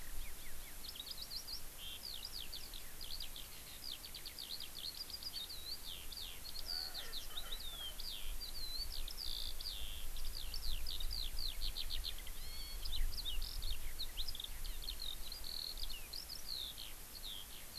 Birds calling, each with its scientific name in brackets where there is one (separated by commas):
Erckel's Francolin (Pternistis erckelii), Eurasian Skylark (Alauda arvensis)